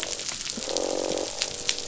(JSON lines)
{"label": "biophony, croak", "recorder": "SoundTrap 500"}